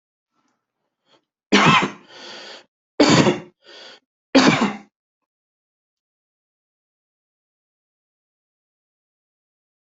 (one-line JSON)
{"expert_labels": [{"quality": "good", "cough_type": "dry", "dyspnea": true, "wheezing": true, "stridor": false, "choking": false, "congestion": false, "nothing": false, "diagnosis": "obstructive lung disease", "severity": "mild"}]}